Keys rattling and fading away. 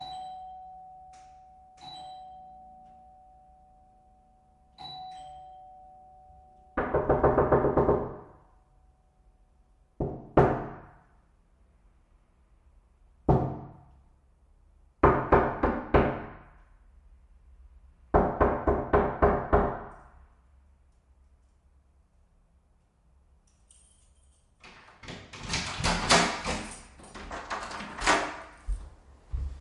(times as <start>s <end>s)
23.8s 24.4s